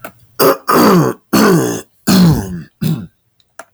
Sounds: Throat clearing